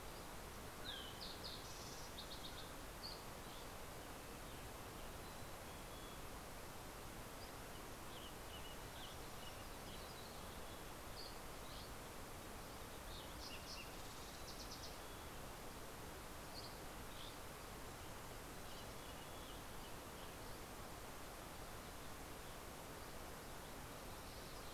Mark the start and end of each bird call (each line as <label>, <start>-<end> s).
Yellow-rumped Warbler (Setophaga coronata), 0.0-0.7 s
Red-breasted Nuthatch (Sitta canadensis), 0.0-8.1 s
Mountain Quail (Oreortyx pictus), 0.3-1.4 s
Fox Sparrow (Passerella iliaca), 0.4-2.8 s
Dusky Flycatcher (Empidonax oberholseri), 2.7-3.9 s
Mountain Chickadee (Poecile gambeli), 4.9-6.4 s
Western Tanager (Piranga ludoviciana), 7.3-9.8 s
Yellow-rumped Warbler (Setophaga coronata), 7.9-10.7 s
Mountain Chickadee (Poecile gambeli), 9.7-11.2 s
Dusky Flycatcher (Empidonax oberholseri), 10.9-12.3 s
Fox Sparrow (Passerella iliaca), 12.5-15.7 s
Dusky Flycatcher (Empidonax oberholseri), 16.2-18.2 s
Mountain Chickadee (Poecile gambeli), 18.4-19.9 s
Western Tanager (Piranga ludoviciana), 18.5-21.1 s